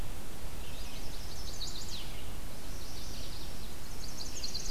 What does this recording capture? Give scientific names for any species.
Vireo olivaceus, Setophaga pensylvanica